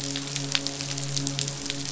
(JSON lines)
{"label": "biophony, midshipman", "recorder": "SoundTrap 500"}